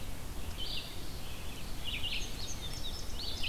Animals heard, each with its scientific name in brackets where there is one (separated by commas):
Red-eyed Vireo (Vireo olivaceus), Indigo Bunting (Passerina cyanea)